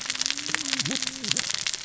{"label": "biophony, cascading saw", "recorder": "SoundTrap 600 or HydroMoth"}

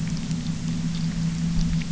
{"label": "anthrophony, boat engine", "recorder": "SoundTrap 300"}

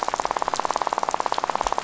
{"label": "biophony, rattle", "recorder": "SoundTrap 500"}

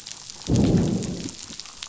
{"label": "biophony, growl", "recorder": "SoundTrap 500"}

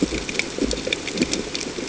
{"label": "ambient", "recorder": "HydroMoth"}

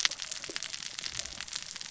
{"label": "biophony, cascading saw", "recorder": "SoundTrap 600 or HydroMoth"}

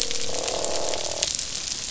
{"label": "biophony, croak", "recorder": "SoundTrap 500"}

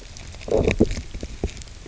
{"label": "biophony, low growl", "recorder": "SoundTrap 300"}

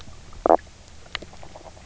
{"label": "biophony, stridulation", "recorder": "SoundTrap 300"}
{"label": "biophony, knock croak", "recorder": "SoundTrap 300"}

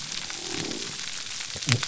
{"label": "biophony", "recorder": "SoundTrap 300"}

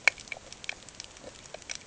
{"label": "ambient", "recorder": "HydroMoth"}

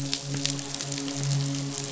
{"label": "biophony, midshipman", "recorder": "SoundTrap 500"}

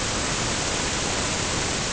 {"label": "ambient", "recorder": "HydroMoth"}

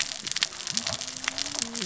{"label": "biophony, cascading saw", "recorder": "SoundTrap 600 or HydroMoth"}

